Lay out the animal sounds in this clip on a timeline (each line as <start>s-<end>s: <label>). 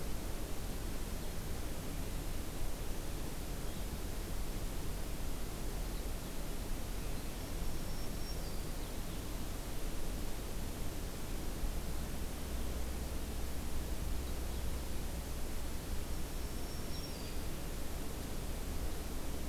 7.2s-8.8s: Black-throated Green Warbler (Setophaga virens)
8.6s-9.2s: American Goldfinch (Spinus tristis)
16.1s-17.6s: Black-throated Green Warbler (Setophaga virens)
16.8s-17.7s: American Goldfinch (Spinus tristis)